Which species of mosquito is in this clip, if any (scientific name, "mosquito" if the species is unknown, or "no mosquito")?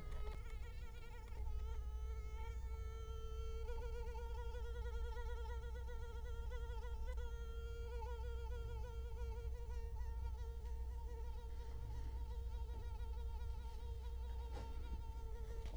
Culex quinquefasciatus